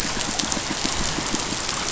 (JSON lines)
{"label": "biophony, pulse", "recorder": "SoundTrap 500"}